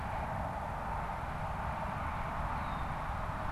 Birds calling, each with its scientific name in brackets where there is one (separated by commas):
Red-winged Blackbird (Agelaius phoeniceus)